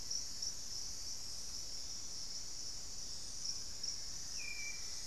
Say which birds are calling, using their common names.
Plumbeous Antbird, Hauxwell's Thrush